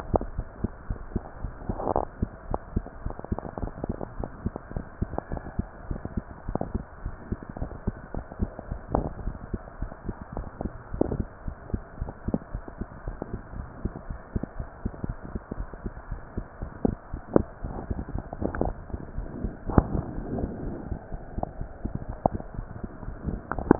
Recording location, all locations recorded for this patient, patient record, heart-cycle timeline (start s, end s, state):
mitral valve (MV)
aortic valve (AV)+pulmonary valve (PV)+tricuspid valve (TV)+mitral valve (MV)
#Age: Child
#Sex: Female
#Height: 136.0 cm
#Weight: 33.9 kg
#Pregnancy status: False
#Murmur: Absent
#Murmur locations: nan
#Most audible location: nan
#Systolic murmur timing: nan
#Systolic murmur shape: nan
#Systolic murmur grading: nan
#Systolic murmur pitch: nan
#Systolic murmur quality: nan
#Diastolic murmur timing: nan
#Diastolic murmur shape: nan
#Diastolic murmur grading: nan
#Diastolic murmur pitch: nan
#Diastolic murmur quality: nan
#Outcome: Normal
#Campaign: 2015 screening campaign
0.00	2.02	unannotated
2.02	2.08	S1
2.08	2.18	systole
2.18	2.30	S2
2.30	2.48	diastole
2.48	2.60	S1
2.60	2.74	systole
2.74	2.84	S2
2.84	3.02	diastole
3.02	3.16	S1
3.16	3.28	systole
3.28	3.42	S2
3.42	3.60	diastole
3.60	3.70	S1
3.70	3.82	systole
3.82	3.96	S2
3.96	4.16	diastole
4.16	4.30	S1
4.30	4.42	systole
4.42	4.56	S2
4.56	4.72	diastole
4.72	4.84	S1
4.84	4.98	systole
4.98	5.12	S2
5.12	5.30	diastole
5.30	5.40	S1
5.40	5.54	systole
5.54	5.68	S2
5.68	5.88	diastole
5.88	6.02	S1
6.02	6.10	systole
6.10	6.24	S2
6.24	6.46	diastole
6.46	6.56	S1
6.56	6.72	systole
6.72	6.86	S2
6.86	7.04	diastole
7.04	7.14	S1
7.14	7.30	systole
7.30	7.42	S2
7.42	7.60	diastole
7.60	7.70	S1
7.70	7.84	systole
7.84	7.96	S2
7.96	8.14	diastole
8.14	8.24	S1
8.24	8.38	systole
8.38	8.54	S2
8.54	8.70	diastole
8.70	8.82	S1
8.82	8.92	systole
8.92	9.06	S2
9.06	9.20	diastole
9.20	9.36	S1
9.36	9.50	systole
9.50	9.64	S2
9.64	9.80	diastole
9.80	9.90	S1
9.90	10.06	systole
10.06	10.16	S2
10.16	10.36	diastole
10.36	10.48	S1
10.48	10.62	systole
10.62	10.72	S2
10.72	10.92	diastole
10.92	11.08	S1
11.08	11.18	systole
11.18	11.28	S2
11.28	11.46	diastole
11.46	11.56	S1
11.56	11.70	systole
11.70	11.82	S2
11.82	12.00	diastole
12.00	12.14	S1
12.14	12.26	systole
12.26	12.40	S2
12.40	12.54	diastole
12.54	12.62	S1
12.62	12.78	systole
12.78	12.88	S2
12.88	13.06	diastole
13.06	13.18	S1
13.18	13.32	systole
13.32	13.42	S2
13.42	13.56	diastole
13.56	13.68	S1
13.68	13.82	systole
13.82	13.92	S2
13.92	14.08	diastole
14.08	14.20	S1
14.20	14.32	systole
14.32	14.44	S2
14.44	14.58	diastole
14.58	14.68	S1
14.68	14.84	systole
14.84	14.94	S2
14.94	15.08	diastole
15.08	15.18	S1
15.18	15.32	systole
15.32	15.42	S2
15.42	15.58	diastole
15.58	15.68	S1
15.68	15.84	systole
15.84	15.94	S2
15.94	16.10	diastole
16.10	16.22	S1
16.22	16.36	systole
16.36	16.46	S2
16.46	16.62	diastole
16.62	16.72	S1
16.72	16.77	systole
16.77	23.79	unannotated